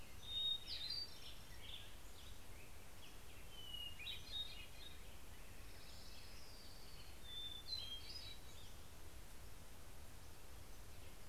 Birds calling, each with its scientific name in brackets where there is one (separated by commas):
Black-headed Grosbeak (Pheucticus melanocephalus), Hermit Thrush (Catharus guttatus), Pacific-slope Flycatcher (Empidonax difficilis), Orange-crowned Warbler (Leiothlypis celata)